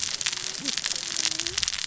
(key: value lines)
label: biophony, cascading saw
recorder: SoundTrap 600 or HydroMoth